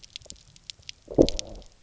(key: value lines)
label: biophony, low growl
recorder: SoundTrap 300